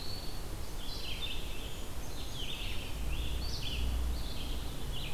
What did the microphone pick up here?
Eastern Wood-Pewee, Red-eyed Vireo, Brown Creeper